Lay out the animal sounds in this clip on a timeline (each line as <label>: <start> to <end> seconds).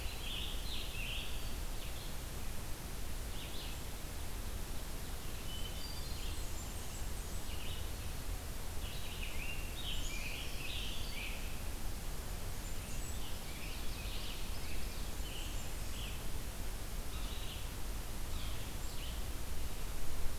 Scarlet Tanager (Piranga olivacea): 0.0 to 1.7 seconds
Red-eyed Vireo (Vireo olivaceus): 0.0 to 8.0 seconds
Hermit Thrush (Catharus guttatus): 5.4 to 6.4 seconds
Blackburnian Warbler (Setophaga fusca): 5.6 to 7.5 seconds
Red-eyed Vireo (Vireo olivaceus): 8.6 to 20.4 seconds
Scarlet Tanager (Piranga olivacea): 8.9 to 11.6 seconds
Black-capped Chickadee (Poecile atricapillus): 9.7 to 10.4 seconds
Blackburnian Warbler (Setophaga fusca): 12.2 to 13.4 seconds
Scarlet Tanager (Piranga olivacea): 12.9 to 16.2 seconds
Blackburnian Warbler (Setophaga fusca): 15.1 to 16.3 seconds